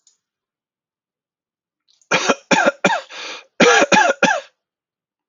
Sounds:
Cough